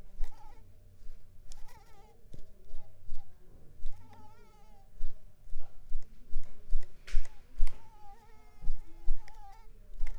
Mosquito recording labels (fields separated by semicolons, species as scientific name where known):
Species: Mansonia uniformis; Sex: female; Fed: unfed; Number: one; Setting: cup